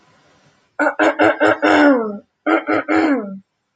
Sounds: Throat clearing